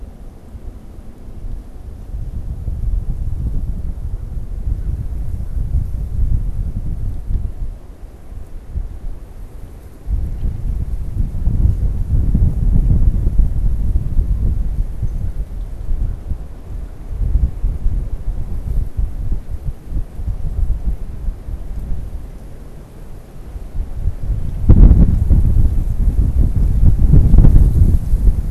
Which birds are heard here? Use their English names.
American Crow